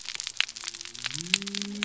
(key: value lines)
label: biophony
recorder: SoundTrap 300